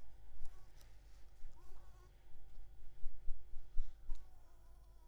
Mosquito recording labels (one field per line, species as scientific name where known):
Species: Anopheles maculipalpis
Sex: female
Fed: unfed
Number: one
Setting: cup